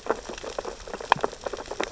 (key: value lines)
label: biophony, sea urchins (Echinidae)
recorder: SoundTrap 600 or HydroMoth